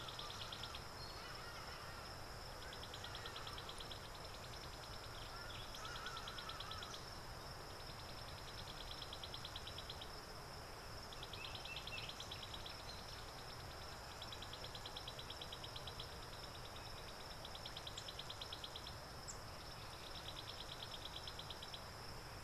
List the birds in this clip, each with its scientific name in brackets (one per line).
African Bare-eyed Thrush (Turdus tephronotus)
Hadada Ibis (Bostrychia hagedash)